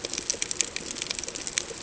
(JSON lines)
{"label": "ambient", "recorder": "HydroMoth"}